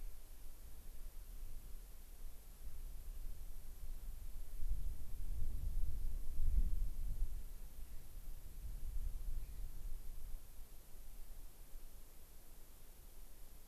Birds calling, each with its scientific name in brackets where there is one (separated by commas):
Gray-crowned Rosy-Finch (Leucosticte tephrocotis)